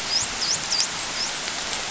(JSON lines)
{"label": "biophony, dolphin", "recorder": "SoundTrap 500"}